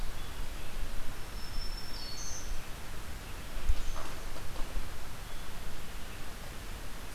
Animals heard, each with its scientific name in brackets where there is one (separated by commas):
Red-eyed Vireo (Vireo olivaceus), Black-throated Green Warbler (Setophaga virens)